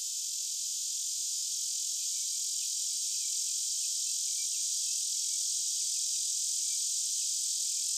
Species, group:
Neotibicen lyricen
Cicadidae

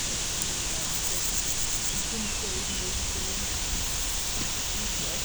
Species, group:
Pseudochorthippus parallelus
Orthoptera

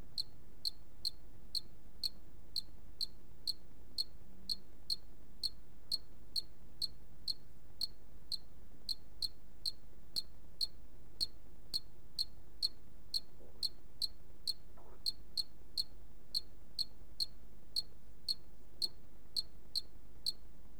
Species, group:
Loxoblemmus arietulus
Orthoptera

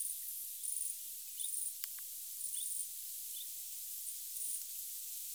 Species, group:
Tettigonia viridissima
Orthoptera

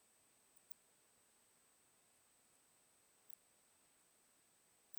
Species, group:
Poecilimon hamatus
Orthoptera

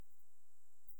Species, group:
Pholidoptera griseoaptera
Orthoptera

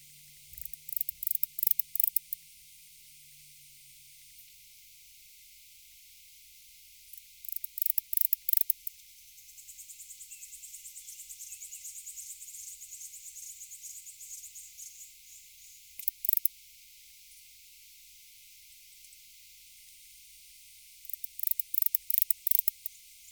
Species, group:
Barbitistes yersini
Orthoptera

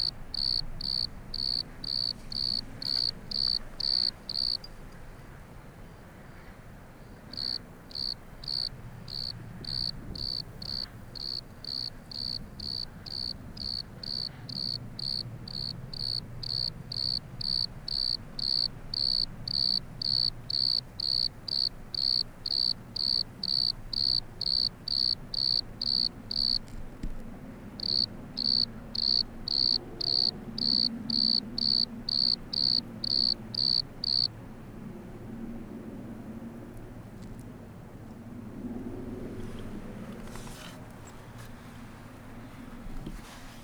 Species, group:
Eumodicogryllus bordigalensis
Orthoptera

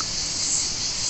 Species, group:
Cicadatra atra
Cicadidae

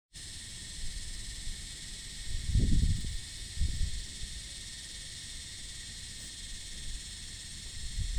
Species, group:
Psaltoda harrisii
Cicadidae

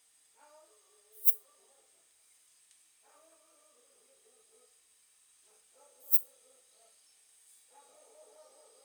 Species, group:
Poecilimon affinis
Orthoptera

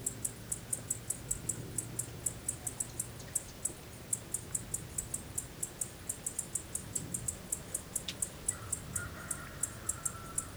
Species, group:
Decticus albifrons
Orthoptera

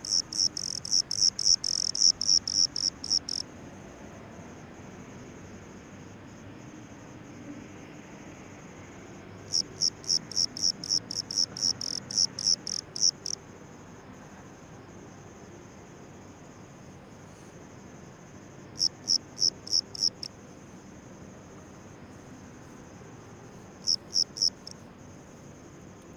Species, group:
Eumodicogryllus bordigalensis
Orthoptera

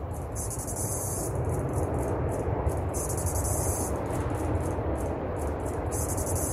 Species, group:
Pauropsalta mneme
Cicadidae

